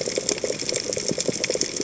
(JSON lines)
{"label": "biophony, chatter", "recorder": "HydroMoth"}